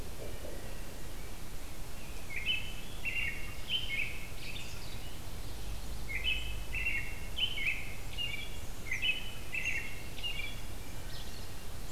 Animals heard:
American Robin (Turdus migratorius)
Wood Thrush (Hylocichla mustelina)

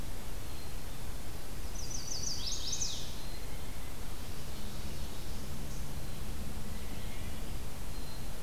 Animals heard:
Black-capped Chickadee (Poecile atricapillus)
Chestnut-sided Warbler (Setophaga pensylvanica)

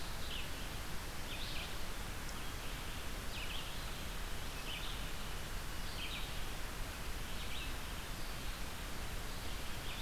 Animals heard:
Red-eyed Vireo (Vireo olivaceus)

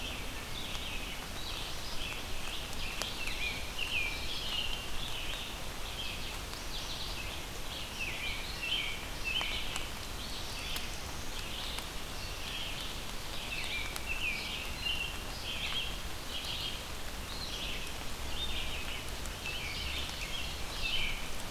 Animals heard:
American Robin (Turdus migratorius)
Black-throated Blue Warbler (Setophaga caerulescens)
Red-eyed Vireo (Vireo olivaceus)

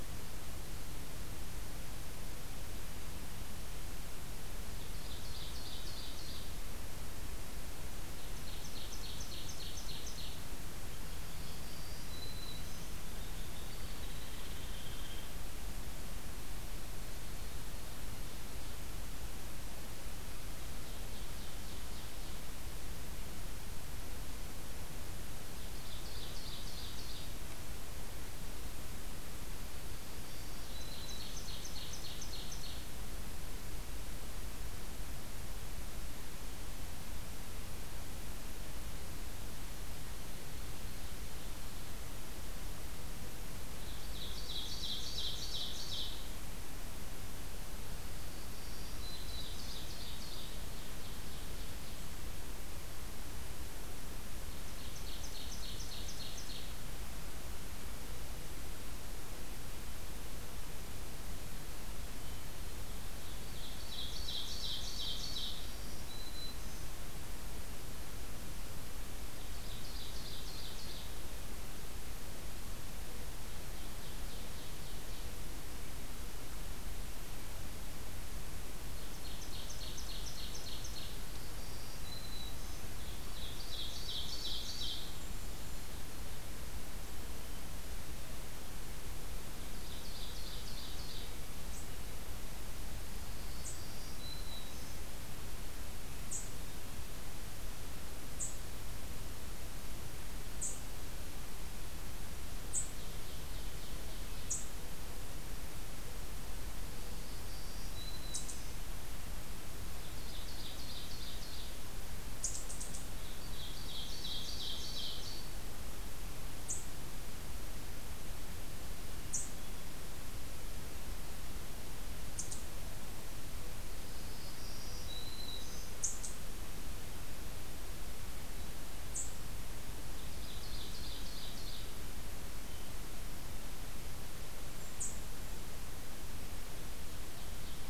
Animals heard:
Ovenbird (Seiurus aurocapilla)
unidentified call
Hairy Woodpecker (Dryobates villosus)
Black-throated Green Warbler (Setophaga virens)

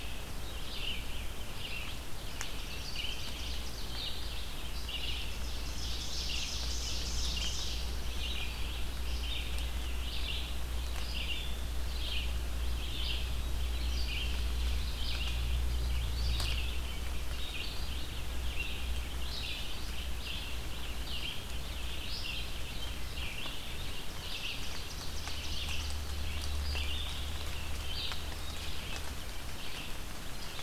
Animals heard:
Red-eyed Vireo (Vireo olivaceus)
Ovenbird (Seiurus aurocapilla)
Black-throated Blue Warbler (Setophaga caerulescens)

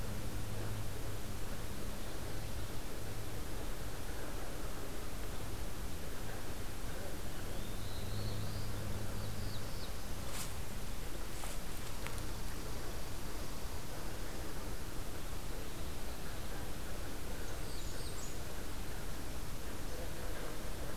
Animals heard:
Blackburnian Warbler (Setophaga fusca)
Black-throated Blue Warbler (Setophaga caerulescens)

